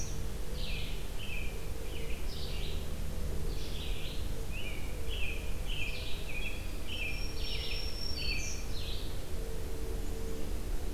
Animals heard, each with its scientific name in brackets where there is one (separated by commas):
Red-eyed Vireo (Vireo olivaceus), American Robin (Turdus migratorius), Black-throated Green Warbler (Setophaga virens)